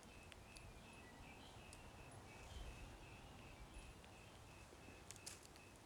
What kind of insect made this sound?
orthopteran